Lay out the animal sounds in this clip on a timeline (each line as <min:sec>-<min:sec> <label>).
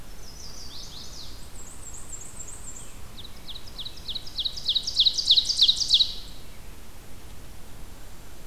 0:00.1-0:01.4 Chestnut-sided Warbler (Setophaga pensylvanica)
0:01.3-0:03.2 Black-and-white Warbler (Mniotilta varia)
0:02.8-0:06.5 Ovenbird (Seiurus aurocapilla)